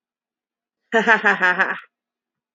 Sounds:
Laughter